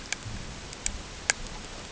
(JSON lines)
{"label": "ambient", "recorder": "HydroMoth"}